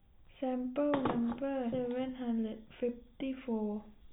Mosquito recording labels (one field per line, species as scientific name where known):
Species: no mosquito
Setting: cup